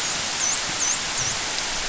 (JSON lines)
{"label": "biophony, dolphin", "recorder": "SoundTrap 500"}